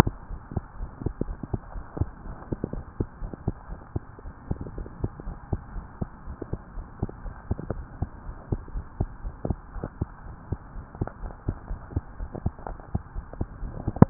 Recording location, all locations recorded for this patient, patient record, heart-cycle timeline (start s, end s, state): tricuspid valve (TV)
aortic valve (AV)+pulmonary valve (PV)+tricuspid valve (TV)+mitral valve (MV)
#Age: Child
#Sex: Female
#Height: 98.0 cm
#Weight: 17.66 kg
#Pregnancy status: False
#Murmur: Absent
#Murmur locations: nan
#Most audible location: nan
#Systolic murmur timing: nan
#Systolic murmur shape: nan
#Systolic murmur grading: nan
#Systolic murmur pitch: nan
#Systolic murmur quality: nan
#Diastolic murmur timing: nan
#Diastolic murmur shape: nan
#Diastolic murmur grading: nan
#Diastolic murmur pitch: nan
#Diastolic murmur quality: nan
#Outcome: Abnormal
#Campaign: 2015 screening campaign
0.00	0.27	unannotated
0.27	0.40	S1
0.40	0.52	systole
0.52	0.64	S2
0.64	0.78	diastole
0.78	0.90	S1
0.90	1.02	systole
1.02	1.16	S2
1.16	1.28	diastole
1.28	1.38	S1
1.38	1.50	systole
1.50	1.60	S2
1.60	1.74	diastole
1.74	1.84	S1
1.84	1.98	systole
1.98	2.12	S2
2.12	2.26	diastole
2.26	2.36	S1
2.36	2.48	systole
2.48	2.58	S2
2.58	2.72	diastole
2.72	2.84	S1
2.84	2.96	systole
2.96	3.08	S2
3.08	3.22	diastole
3.22	3.32	S1
3.32	3.44	systole
3.44	3.56	S2
3.56	3.68	diastole
3.68	3.78	S1
3.78	3.92	systole
3.92	4.02	S2
4.02	4.22	diastole
4.22	4.33	S1
4.33	4.46	systole
4.46	4.58	S2
4.58	4.74	diastole
4.74	4.88	S1
4.88	5.00	systole
5.00	5.14	S2
5.14	5.26	diastole
5.26	5.38	S1
5.38	5.49	systole
5.49	5.62	S2
5.62	5.71	diastole
5.71	5.86	S1
5.86	5.98	systole
5.98	6.08	S2
6.08	6.23	diastole
6.23	6.36	S1
6.36	6.50	systole
6.50	6.60	S2
6.60	6.73	diastole
6.73	6.86	S1
6.86	7.00	systole
7.00	7.10	S2
7.10	7.24	diastole
7.24	7.34	S1
7.34	7.48	systole
7.48	7.58	S2
7.58	7.70	diastole
7.70	7.86	S1
7.86	7.98	systole
7.98	8.10	S2
8.10	8.24	diastole
8.24	8.36	S1
8.36	8.48	systole
8.48	8.62	S2
8.62	8.71	diastole
8.71	8.86	S1
8.86	8.98	systole
8.98	9.10	S2
9.10	9.22	diastole
9.22	9.34	S1
9.34	9.44	systole
9.44	9.60	S2
9.60	9.72	diastole
9.72	9.85	S1
9.85	9.97	systole
9.97	10.10	S2
10.10	10.24	diastole
10.24	10.38	S1
10.38	10.50	systole
10.50	10.60	S2
10.60	10.73	diastole
10.73	10.86	S1
10.86	10.98	systole
10.98	11.08	S2
11.08	11.20	diastole
11.20	11.34	S1
11.34	11.44	systole
11.44	11.58	S2
11.58	11.67	diastole
11.67	11.80	S1
11.80	11.92	systole
11.92	12.06	S2
12.06	12.17	diastole
12.17	12.30	S1
12.30	12.42	systole
12.42	12.54	S2
12.54	12.67	diastole
12.67	12.78	S1
12.78	12.90	systole
12.90	13.02	S2
13.02	13.13	diastole
13.13	13.26	S1
13.26	13.36	systole
13.36	13.48	S2
13.48	13.60	diastole
13.60	13.70	S1
13.70	13.84	systole
13.84	13.93	S2
13.93	14.10	unannotated